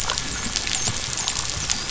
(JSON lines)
{"label": "biophony, dolphin", "recorder": "SoundTrap 500"}